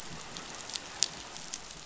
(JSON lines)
{"label": "biophony", "recorder": "SoundTrap 500"}